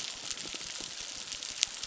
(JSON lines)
{"label": "biophony, crackle", "recorder": "SoundTrap 600"}